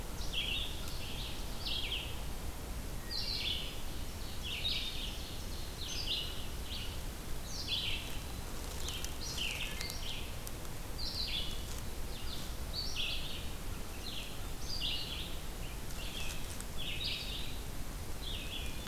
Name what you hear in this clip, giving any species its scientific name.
Vireo olivaceus, Hylocichla mustelina, Seiurus aurocapilla, Contopus virens